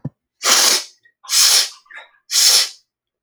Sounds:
Sniff